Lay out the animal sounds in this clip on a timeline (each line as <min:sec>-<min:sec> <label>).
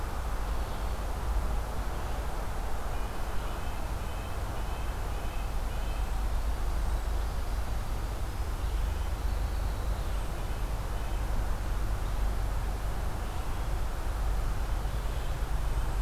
0:00.0-0:16.0 Red-breasted Nuthatch (Sitta canadensis)
0:05.8-0:16.0 Cedar Waxwing (Bombycilla cedrorum)